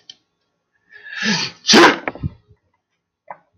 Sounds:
Sneeze